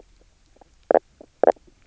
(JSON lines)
{"label": "biophony, knock croak", "recorder": "SoundTrap 300"}